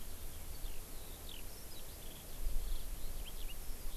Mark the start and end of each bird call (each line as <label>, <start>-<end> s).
Eurasian Skylark (Alauda arvensis), 0.0-4.0 s